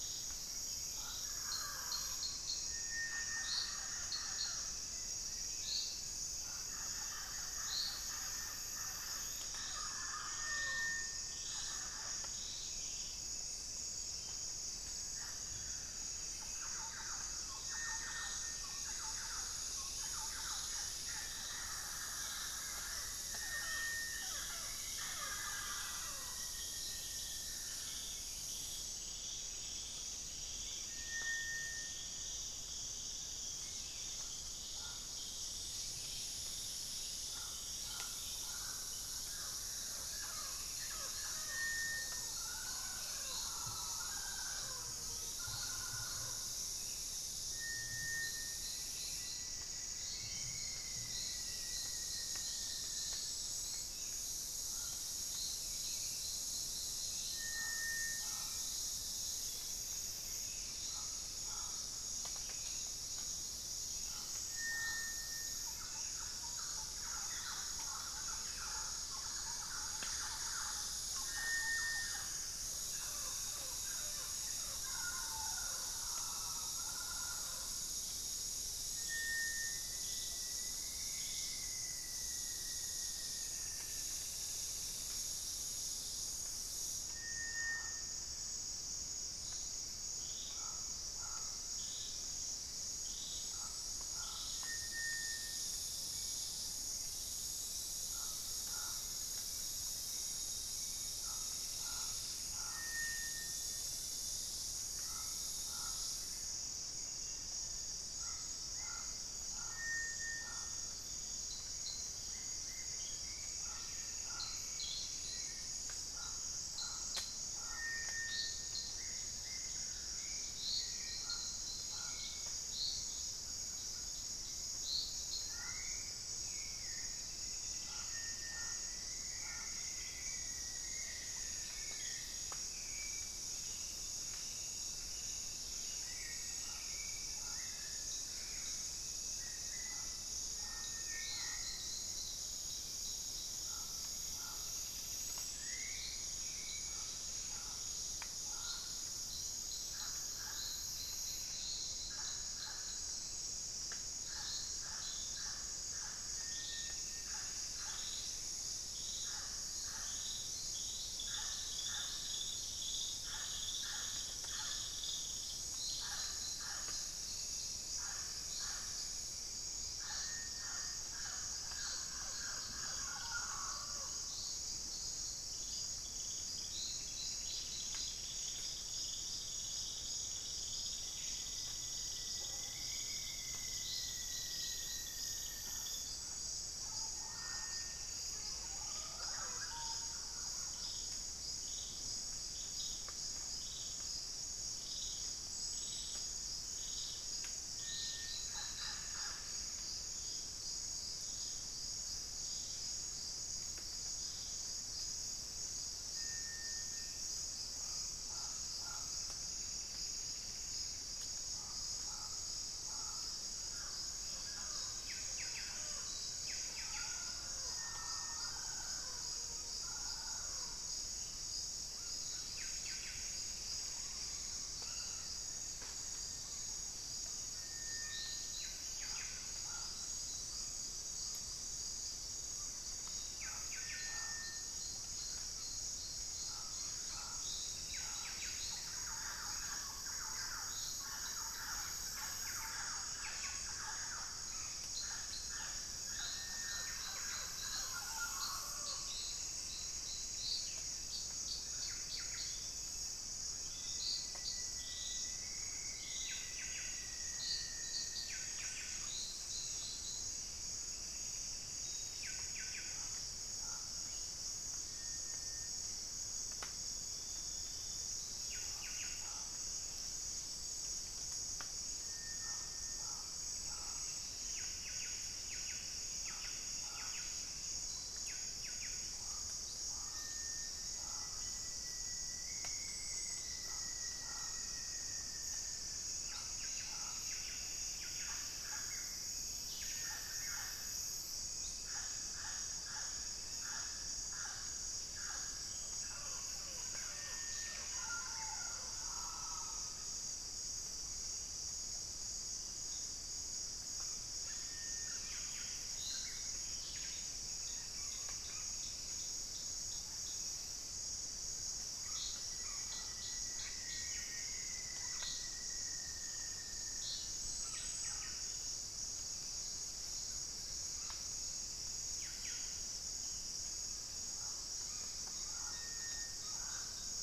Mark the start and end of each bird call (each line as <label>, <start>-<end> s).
White-flanked Antwren (Myrmotherula axillaris), 4.8-6.4 s
Thrush-like Wren (Campylorhynchus turdinus), 16.1-26.9 s
unidentified bird, 19.2-21.9 s
White-flanked Antwren (Myrmotherula axillaris), 22.1-24.6 s
Rufous-fronted Antthrush (Formicarius rufifrons), 22.4-28.6 s
Pygmy Antwren (Myrmotherula brachyura), 29.2-30.7 s
Pygmy Antwren (Myrmotherula brachyura), 35.9-36.7 s
Rufous-fronted Antthrush (Formicarius rufifrons), 48.1-53.8 s
Hauxwell's Thrush (Turdus hauxwelli), 54.6-76.5 s
Thrush-like Wren (Campylorhynchus turdinus), 64.9-78.4 s
Rufous-fronted Antthrush (Formicarius rufifrons), 78.7-84.6 s
Pygmy Antwren (Myrmotherula brachyura), 83.0-85.0 s
Hauxwell's Thrush (Turdus hauxwelli), 112.6-138.7 s
Rufous-fronted Antthrush (Formicarius rufifrons), 127.9-133.3 s
Hauxwell's Thrush (Turdus hauxwelli), 141.4-147.5 s
Pygmy Antwren (Myrmotherula brachyura), 144.4-146.1 s
Pygmy Antwren (Myrmotherula brachyura), 156.5-158.8 s
Pygmy Antwren (Myrmotherula brachyura), 176.6-179.1 s
Rufous-fronted Antthrush (Formicarius rufifrons), 181.6-186.0 s
Pygmy Antwren (Myrmotherula brachyura), 187.3-189.7 s
Buff-breasted Wren (Cantorchilus leucotis), 214.9-217.4 s
Buff-breasted Wren (Cantorchilus leucotis), 222.4-223.5 s
Pygmy Antwren (Myrmotherula brachyura), 223.1-224.7 s
Buff-breasted Wren (Cantorchilus leucotis), 228.5-263.4 s
unidentified bird, 244.2-244.9 s
Pygmy Antwren (Myrmotherula brachyura), 248.7-250.3 s
Rufous-fronted Antthrush (Formicarius rufifrons), 253.4-258.8 s
Pygmy Antwren (Myrmotherula brachyura), 260.6-262.4 s
Buff-breasted Wren (Cantorchilus leucotis), 268.4-269.6 s
Pygmy Antwren (Myrmotherula brachyura), 273.2-275.0 s
Buff-breasted Wren (Cantorchilus leucotis), 274.3-279.2 s
Rufous-fronted Antthrush (Formicarius rufifrons), 280.6-286.2 s
Buff-breasted Wren (Cantorchilus leucotis), 285.7-289.5 s
Pygmy Antwren (Myrmotherula brachyura), 295.1-299.2 s
unidentified bird, 296.1-299.0 s
Buff-breasted Wren (Cantorchilus leucotis), 305.1-307.7 s
Pygmy Antwren (Myrmotherula brachyura), 307.3-309.4 s
Rufous-fronted Antthrush (Formicarius rufifrons), 312.0-317.2 s
Buff-breasted Wren (Cantorchilus leucotis), 317.5-318.8 s
Buff-breasted Wren (Cantorchilus leucotis), 322.0-327.2 s